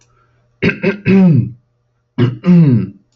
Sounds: Throat clearing